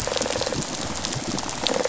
{"label": "biophony, rattle response", "recorder": "SoundTrap 500"}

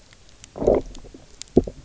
{"label": "biophony, low growl", "recorder": "SoundTrap 300"}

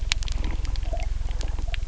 {"label": "anthrophony, boat engine", "recorder": "SoundTrap 300"}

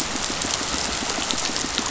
{"label": "biophony, pulse", "recorder": "SoundTrap 500"}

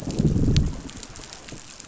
{"label": "biophony, growl", "recorder": "SoundTrap 500"}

